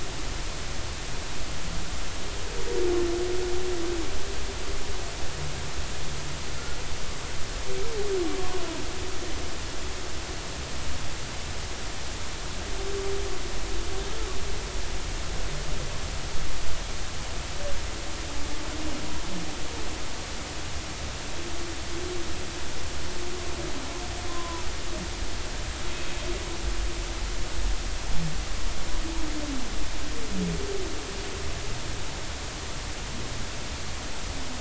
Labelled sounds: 24.3	24.6	humpback whale, 0.93 to 1.1 kHz

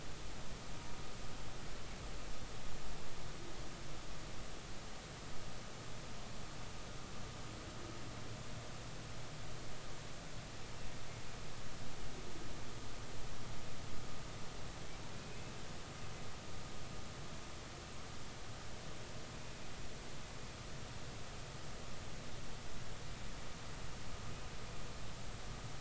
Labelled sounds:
15.3	15.6	humpback whale, 2.5 to 2.7 kHz

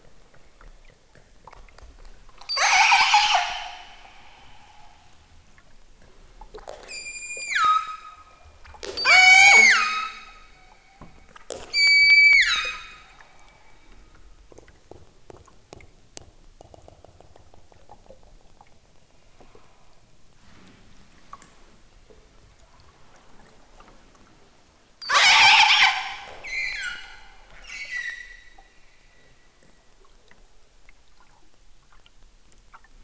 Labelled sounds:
2.4	4.0	killer whale, southern Alaska resident, 0.28 to 8.0 kHz
6.8	8.5	killer whale, southern Alaska resident, 0.92 to 8.0 kHz
8.8	10.3	killer whale, southern Alaska resident, 0.28 to 8.0 kHz
11.7	13.2	killer whale, southern Alaska resident, 0.83 to 8.0 kHz
24.9	27.2	killer whale, southern Alaska resident, 0.23 to 8.0 kHz
27.6	28.6	killer whale, southern Alaska resident, 1.5 to 8.0 kHz

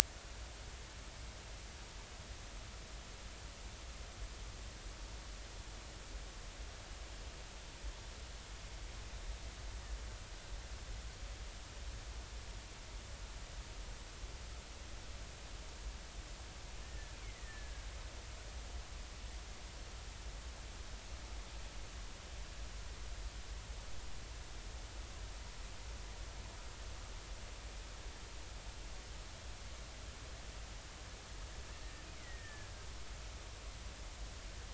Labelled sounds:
16.8	17.9	killer whale, Bigg's (transient), 1.6 to 2.5 kHz
32.2	32.7	killer whale, Bigg's (transient), 1.6 to 2.3 kHz

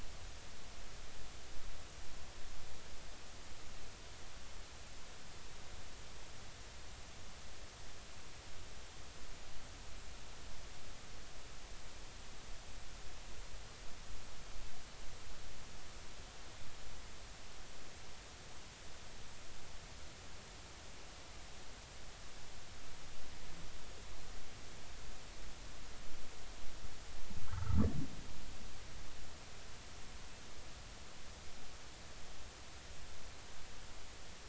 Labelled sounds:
27.4	27.9	humpback whale, 1.0 to 1.6 kHz

